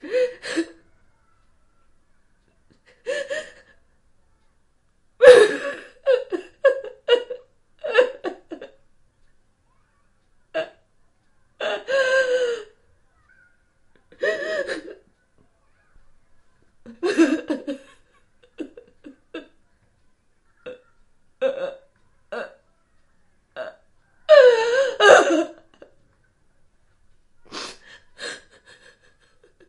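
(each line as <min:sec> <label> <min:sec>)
0:00.0 A woman is crying. 0:29.6
0:05.1 A woman crying emotionally. 0:08.9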